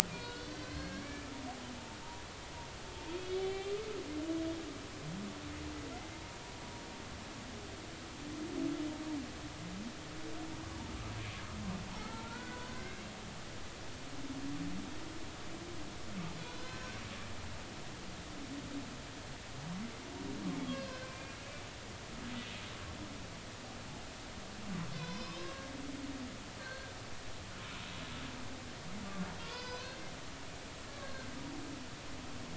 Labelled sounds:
0.1	1.3	humpback whale, 1.4 to 4.7 kHz
3.2	3.8	humpback whale, 2.2 to 3.9 kHz
6.1	6.4	humpback whale, 0.90 to 0.99 kHz
12.1	14.0	humpback whale, 0.86 to 2.2 kHz
16.4	17.0	humpback whale, 1.4 to 4.2 kHz
20.9	21.4	humpback whale, 1.5 to 2.5 kHz
24.9	25.7	humpback whale, 0.93 to 5.3 kHz
26.6	26.9	humpback whale, 1.5 to 1.7 kHz
29.4	30.0	humpback whale, 0.93 to 6.2 kHz
31.0	31.3	humpback whale, 1.5 to 1.7 kHz

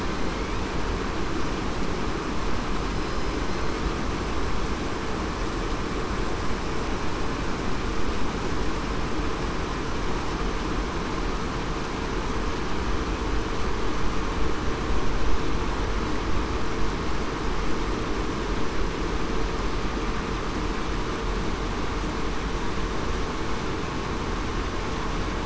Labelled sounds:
2.9	3.4	killer whale, southern resident, 5.0 to 5.1 kHz

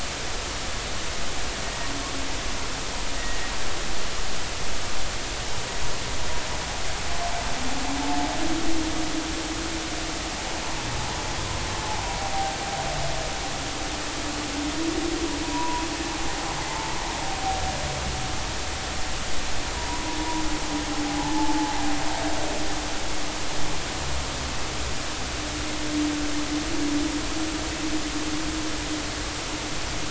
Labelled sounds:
3.2	3.4	humpback whale, 1.8 to 2.0 kHz
12.2	12.5	humpback whale, 0.80 to 0.83 kHz
15.4	15.8	humpback whale, 0.90 to 1.1 kHz
16.6	16.9	humpback whale, 0.83 to 0.93 kHz
19.7	20.0	humpback whale, 0.90 to 1.1 kHz
21.1	21.7	humpback whale, 0.80 to 0.93 kHz

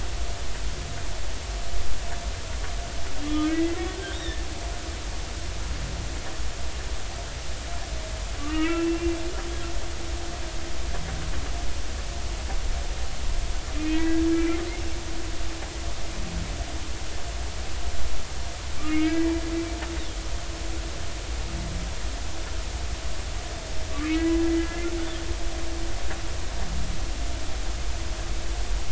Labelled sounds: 3.2	4.4	humpback whale, 1.2 to 3.8 kHz
8.4	9.2	humpback whale, 1.1 to 2.8 kHz
13.7	14.6	humpback whale, 1.5 to 2.6 kHz
18.8	19.3	humpback whale, 1.1 to 2.9 kHz
24.0	24.9	humpback whale, 1.6 to 2.0 kHz

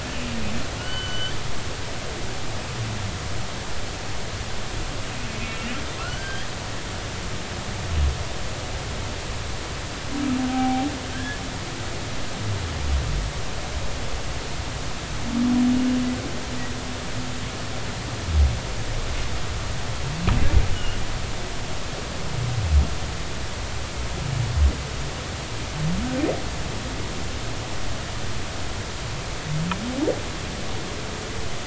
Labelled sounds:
0.8	1.3	humpback whale, 1.4 to 3.2 kHz
5.4	6.5	humpback whale, 1.3 to 4.8 kHz
11.1	11.9	humpback whale, 0.80 to 1.8 kHz
20.7	21.0	humpback whale, 2.8 to 3.0 kHz

